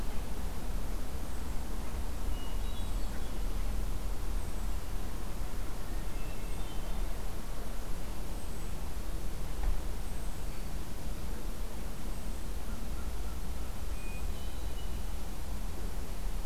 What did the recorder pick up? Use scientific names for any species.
Catharus guttatus